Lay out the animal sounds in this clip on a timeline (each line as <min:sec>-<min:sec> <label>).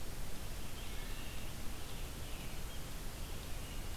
0:00.0-0:04.0 Red-eyed Vireo (Vireo olivaceus)
0:00.6-0:01.4 Wood Thrush (Hylocichla mustelina)